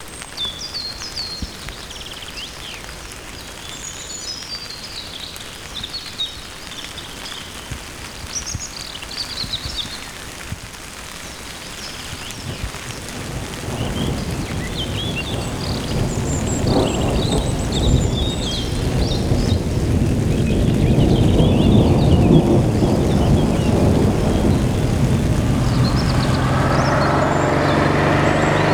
Is this inside a building?
no